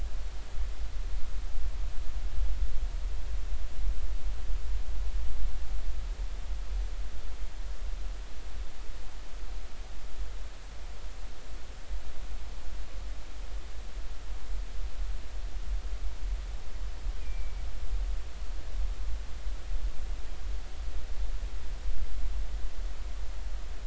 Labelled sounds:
17.2	17.7	killer whale, northern resident, G clan, 2.2 to 2.5 kHz

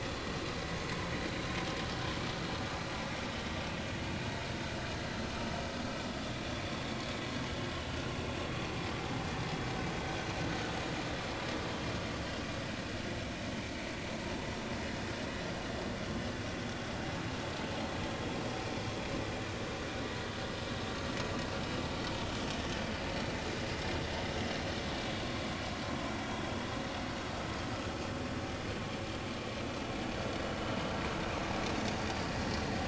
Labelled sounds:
32.1	32.3	vessel noise, 4.7 to 4.9 kHz

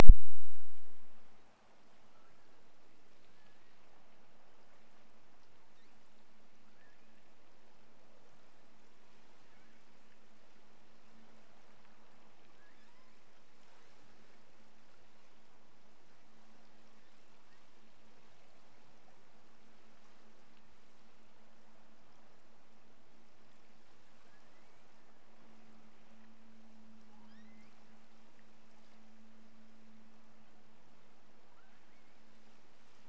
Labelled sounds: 2.0	2.5	killer whale, offshore, 1.1 to 2.4 kHz
3.2	4.0	killer whale, offshore, 1.1 to 2.0 kHz
6.6	7.3	killer whale, offshore, 0.95 to 2.7 kHz
12.5	13.3	killer whale, offshore, 1.5 to 5.4 kHz
24.1	25.0	killer whale, offshore, 1.3 to 2.9 kHz
27.2	27.9	killer whale, offshore, 1.3 to 6.5 kHz
31.5	32.4	killer whale, offshore, 1.0 to 2.7 kHz

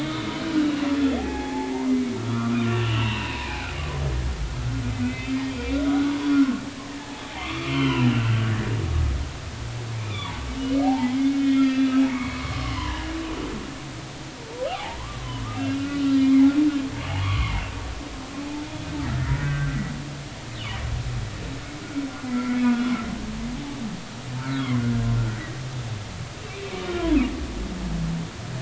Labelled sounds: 1.2	4.5	humpback whale, 0.80 to 3.1 kHz
5.0	6.4	humpback whale, 2.0 to 3.5 kHz
6.9	8.5	humpback whale, 0.80 to 3.2 kHz
10.0	13.1	humpback whale, 0.80 to 4.1 kHz
14.7	16.5	humpback whale, 0.80 to 4.1 kHz
17.1	17.6	humpback whale, 0.80 to 2.3 kHz
19.4	19.8	humpback whale, 1.5 to 1.6 kHz
22.3	22.9	humpback whale, 1.3 to 2.3 kHz
24.4	24.7	humpback whale, 1.3 to 1.7 kHz

